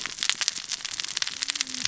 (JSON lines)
{"label": "biophony, cascading saw", "recorder": "SoundTrap 600 or HydroMoth"}